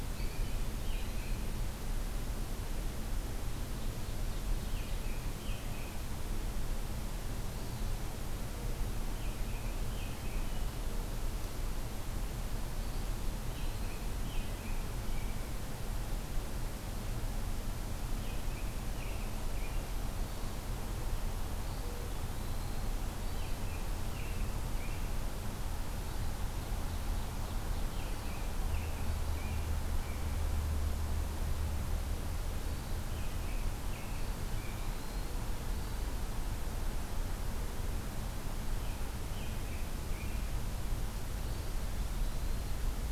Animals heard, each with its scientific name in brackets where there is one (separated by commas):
Eastern Wood-Pewee (Contopus virens), Ovenbird (Seiurus aurocapilla), American Robin (Turdus migratorius), Hermit Thrush (Catharus guttatus)